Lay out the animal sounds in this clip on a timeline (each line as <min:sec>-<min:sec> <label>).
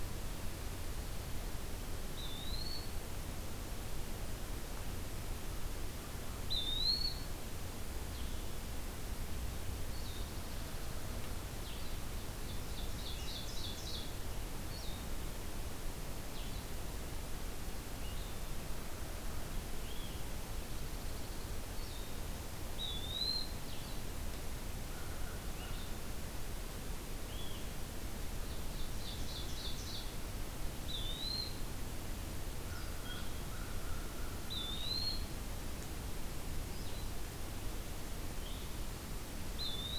0:02.0-0:03.1 Eastern Wood-Pewee (Contopus virens)
0:06.4-0:07.3 Eastern Wood-Pewee (Contopus virens)
0:07.9-0:40.0 Blue-headed Vireo (Vireo solitarius)
0:12.3-0:14.2 Ovenbird (Seiurus aurocapilla)
0:20.4-0:21.6 Dark-eyed Junco (Junco hyemalis)
0:22.7-0:23.6 Eastern Wood-Pewee (Contopus virens)
0:28.4-0:30.3 Ovenbird (Seiurus aurocapilla)
0:30.8-0:31.6 Eastern Wood-Pewee (Contopus virens)
0:32.6-0:34.8 American Crow (Corvus brachyrhynchos)
0:34.3-0:35.3 Eastern Wood-Pewee (Contopus virens)
0:39.5-0:40.0 Eastern Wood-Pewee (Contopus virens)